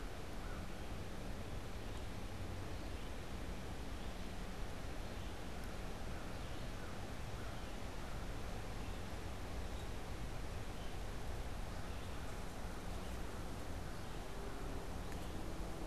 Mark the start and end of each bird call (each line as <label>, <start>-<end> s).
American Crow (Corvus brachyrhynchos), 0.0-0.9 s
Red-eyed Vireo (Vireo olivaceus), 0.0-6.8 s
American Crow (Corvus brachyrhynchos), 6.7-8.4 s
Red-eyed Vireo (Vireo olivaceus), 8.7-15.9 s